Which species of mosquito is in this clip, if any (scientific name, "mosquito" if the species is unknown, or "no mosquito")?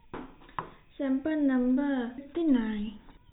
no mosquito